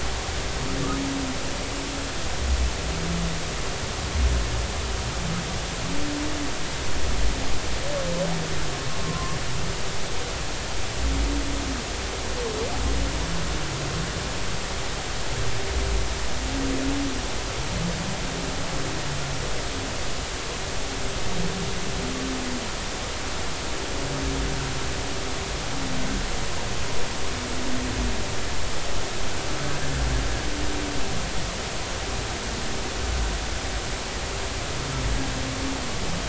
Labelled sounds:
9.0	9.4	humpback whale, 0.99 to 1.2 kHz
29.7	30.0	humpback whale, 1.5 to 1.8 kHz

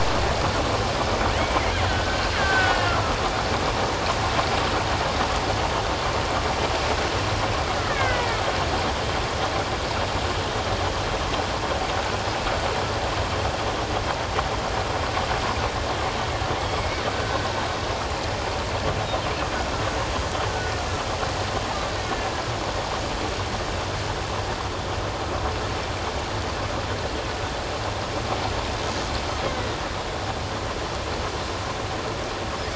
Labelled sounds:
1.4	3.2	killer whale, Bigg's (transient), 1.2 to 3.4 kHz
7.8	8.4	killer whale, Bigg's (transient), 1.4 to 2.3 kHz
16.8	17.4	killer whale, Bigg's (transient), 1.4 to 2.3 kHz

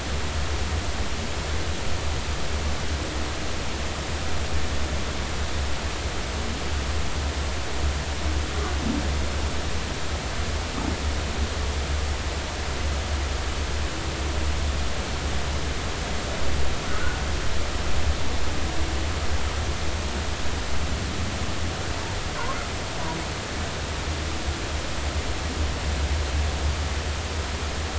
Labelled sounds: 16.9	17.2	humpback whale, 1.4 to 1.6 kHz

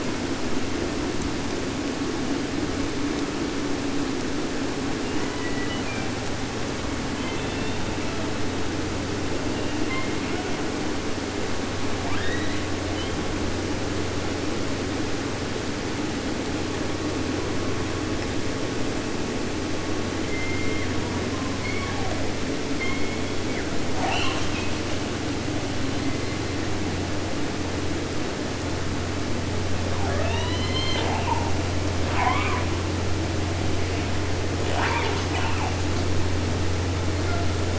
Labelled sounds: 5.0	6.2	killer whale, southern resident, J pod, call S01, 0.50 to 3.6 kHz
7.1	8.4	killer whale, southern resident, J pod, call S01, 0.50 to 4.3 kHz
9.5	11.0	killer whale, 0.46 to 4.7 kHz
12.0	13.3	killer whale, 0.50 to 4.8 kHz
20.2	21.5	killer whale, southern resident, 0.50 to 4.5 kHz
21.6	22.2	killer whale, southern resident, J pod, call S01, 0.50 to 4.6 kHz
22.7	23.7	killer whale, southern resident, J pod, call S44, 0.70 to 6.0 kHz
23.8	24.8	killer whale, 0.50 to 8.0 kHz
25.7	27.0	killer whale, 0.41 to 4.8 kHz
29.8	31.5	killer whale, southern resident, J pod, call S44, 0.50 to 8.0 kHz
31.9	32.8	killer whale, 0.50 to 3.8 kHz
34.6	35.8	killer whale, 0.50 to 8.0 kHz
37.2	37.5	killer whale, 0.43 to 2.9 kHz

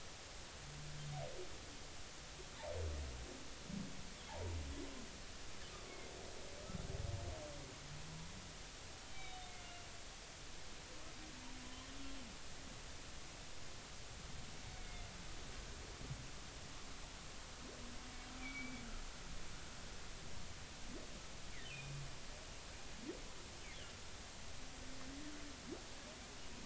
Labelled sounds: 9.1	9.9	humpback whale, 2.1 to 3.9 kHz
11.6	11.9	humpback whale, 0.96 to 1.1 kHz
14.8	15.1	humpback whale, 2.0 to 2.3 kHz
18.4	18.8	humpback whale, 2.1 to 2.5 kHz
21.7	21.9	humpback whale, 2.4 to 2.8 kHz

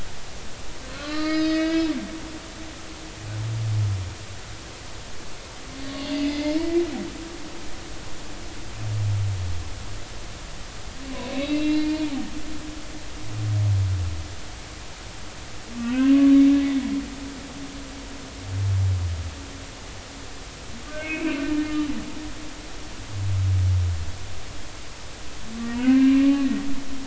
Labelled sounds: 1.0	1.9	humpback whale, 1.1 to 5.1 kHz
6.1	6.8	humpback whale, 1.9 to 2.2 kHz
11.3	12.2	humpback whale, 0.80 to 4.0 kHz
15.7	16.2	humpback whale, 1.3 to 3.2 kHz
20.9	21.4	humpback whale, 1.5 to 2.8 kHz
25.5	26.3	humpback whale, 1.0 to 3.0 kHz

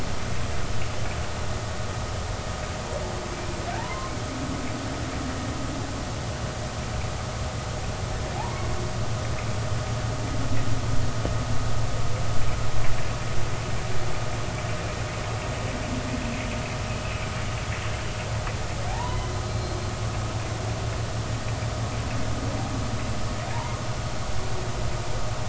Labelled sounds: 3.8	4.2	humpback whale, 0.86 to 1.1 kHz
8.4	8.7	humpback whale, 0.80 to 1.1 kHz
18.9	19.8	humpback whale, 0.80 to 4.3 kHz
23.5	23.8	humpback whale, 0.86 to 1.3 kHz

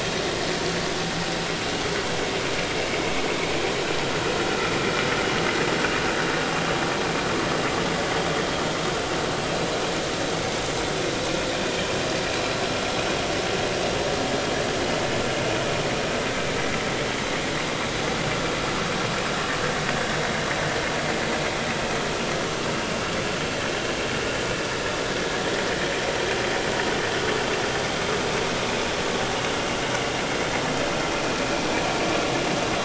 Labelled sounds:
4.5	4.7	vessel noise, 1.3 to 1.5 kHz

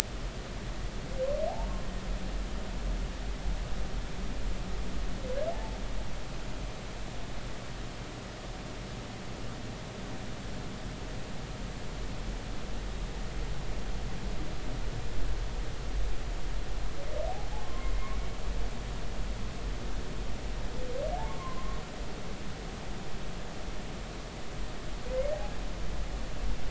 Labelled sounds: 5.5	5.8	humpback whale, 0.80 to 0.93 kHz
17.6	17.9	humpback whale, 0.99 to 1.1 kHz
21.2	21.8	humpback whale, 0.96 to 1.2 kHz

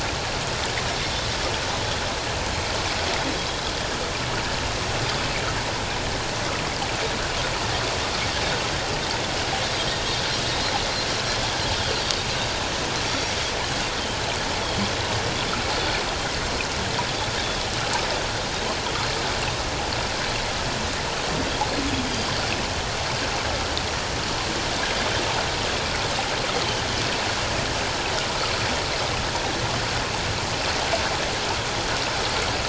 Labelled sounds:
22.1	22.5	Pacific white-sided dolphin, 4.5 to 4.9 kHz

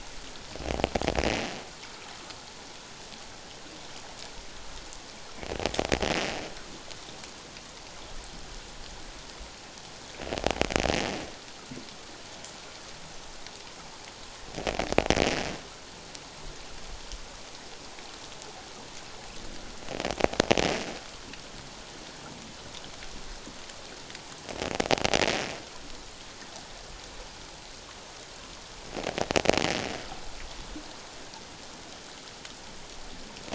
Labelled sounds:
1.8	2.1	water noise, 1.2 to 1.4 kHz

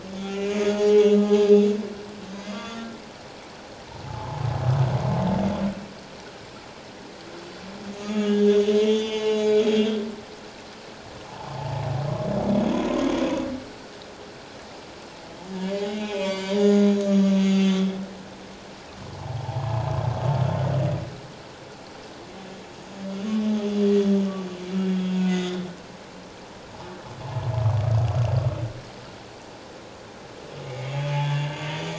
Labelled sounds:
0.2	1.6	humpback whale, 0.81 to 6.9 kHz
2.4	3.0	humpback whale, 1.1 to 3.5 kHz
4.1	4.4	humpback whale, 0.81 to 1.3 kHz
7.9	9.7	humpback whale, 1.2 to 6.9 kHz
11.5	11.8	humpback whale, 0.78 to 1.0 kHz
15.7	17.8	humpback whale, 0.91 to 7.5 kHz
19.1	19.8	humpback whale, 0.78 to 1.1 kHz
25.2	25.7	humpback whale, 1.9 to 3.8 kHz
30.6	31.9	humpback whale, 0.81 to 3.5 kHz

